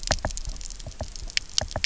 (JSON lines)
{"label": "biophony, knock", "recorder": "SoundTrap 300"}